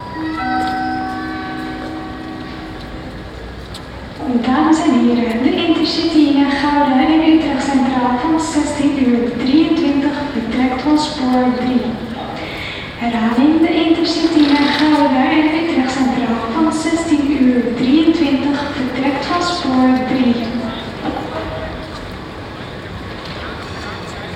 Does a man a make the announcement?
no